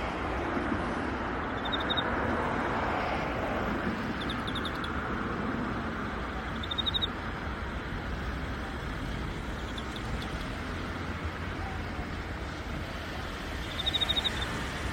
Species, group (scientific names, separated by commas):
Teleogryllus emma, Orthoptera